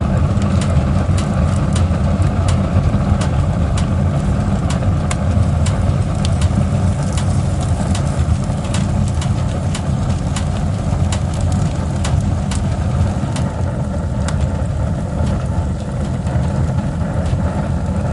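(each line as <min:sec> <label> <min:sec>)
0:00.0 The steady crackle of flames with occasional pops of burning wood. 0:18.1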